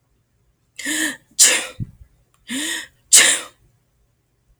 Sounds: Sneeze